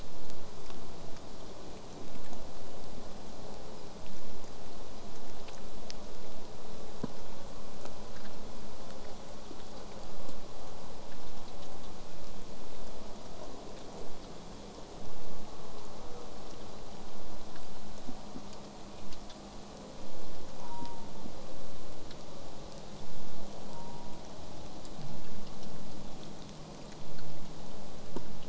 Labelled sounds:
0.0	5.0	vessel noise, 0 to 8.0 kHz
20.6	21.2	killer whale, southern resident, J pod, call S04, 0.69 to 1.1 kHz
23.7	24.3	killer whale, southern resident, J pod, call S04, 0.66 to 1.2 kHz

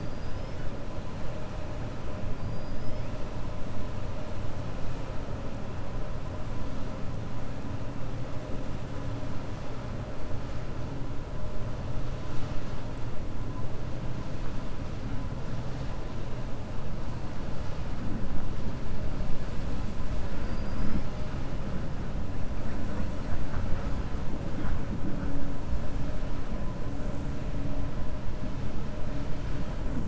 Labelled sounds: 2.4	3.1	killer whale, 4.6 to 5.3 kHz
20.4	21.1	killer whale, 4.2 to 5.7 kHz

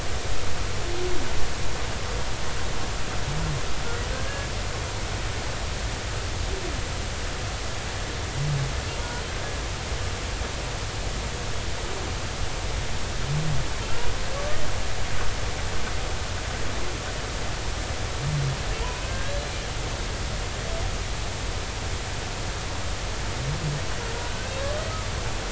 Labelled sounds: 4.1	4.5	humpback whale, 1.5 to 1.7 kHz
9.0	9.2	humpback whale, 0.90 to 1.0 kHz
14.3	14.6	humpback whale, 1.1 to 1.2 kHz
19.1	19.6	humpback whale, 1.5 to 4.2 kHz

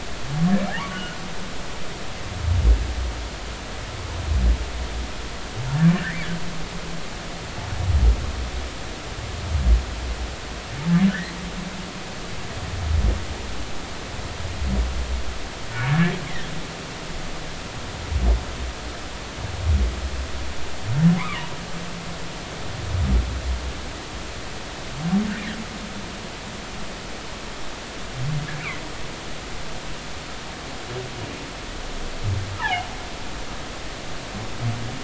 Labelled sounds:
0.7	1.2	humpback whale, 0.80 to 1.5 kHz
5.9	6.2	humpback whale, 1.4 to 2.1 kHz
15.9	16.1	humpback whale, 1.6 to 1.9 kHz
21.2	21.5	humpback whale, 0.90 to 1.4 kHz
28.6	28.8	humpback whale, 1.9 to 2.8 kHz
32.6	32.9	humpback whale, 0.80 to 1.1 kHz

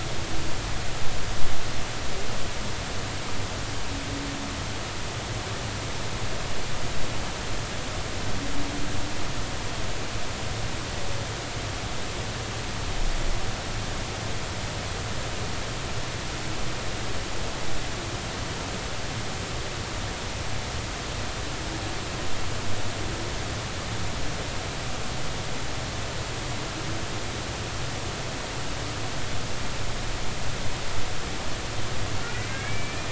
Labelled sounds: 32.2	33.1	humpback whale, 1.9 to 2.5 kHz

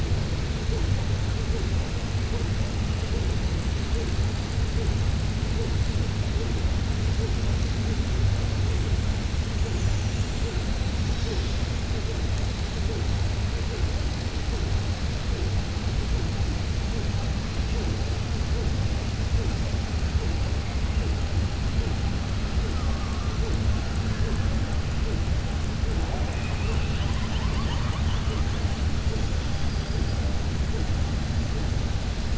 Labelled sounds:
29.5	30.2	killer whale, southern resident, 4.6 to 5.8 kHz

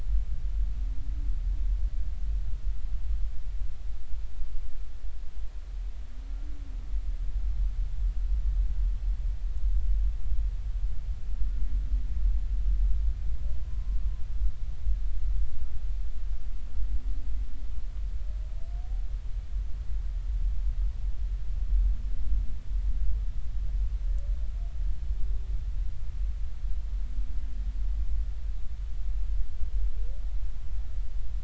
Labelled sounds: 13.6	14.0	humpback whale, 0.96 to 1.1 kHz

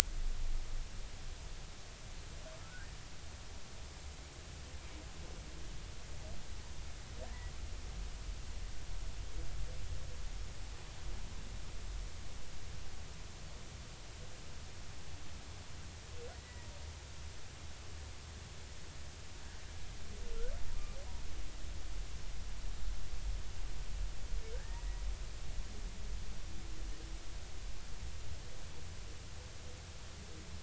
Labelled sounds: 2.6	2.9	humpback whale, 1.3 to 1.7 kHz
16.3	16.7	humpback whale, 1.8 to 2.0 kHz
24.5	25.0	humpback whale, 1.5 to 2.0 kHz

